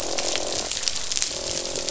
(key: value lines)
label: biophony, croak
recorder: SoundTrap 500